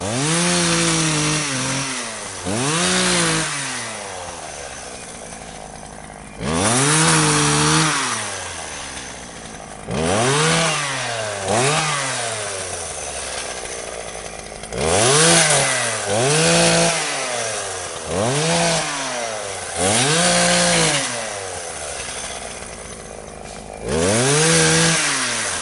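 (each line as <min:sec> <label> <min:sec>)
0:00.0 A chainsaw is revving. 0:25.6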